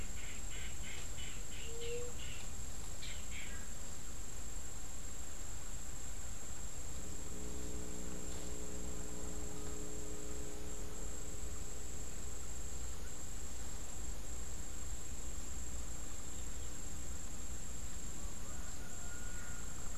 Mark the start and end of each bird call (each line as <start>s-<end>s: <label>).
0.0s-3.9s: unidentified bird
1.5s-2.5s: White-tipped Dove (Leptotila verreauxi)